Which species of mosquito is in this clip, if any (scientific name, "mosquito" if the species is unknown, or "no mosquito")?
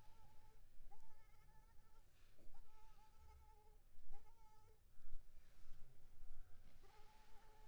Anopheles arabiensis